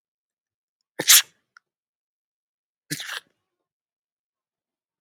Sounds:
Sneeze